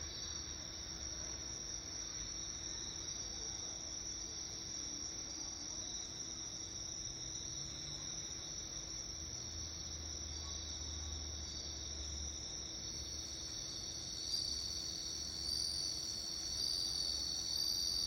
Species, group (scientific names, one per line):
Meloimorpha japonica
Orthoptera